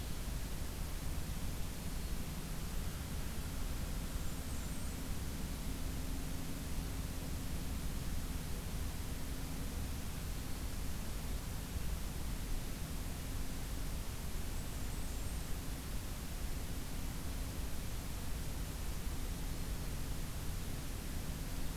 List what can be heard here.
Black-throated Green Warbler, Blackburnian Warbler